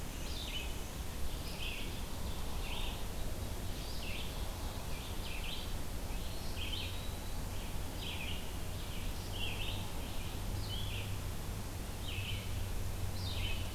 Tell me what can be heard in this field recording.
Black-and-white Warbler, Red-eyed Vireo, Ovenbird, Eastern Wood-Pewee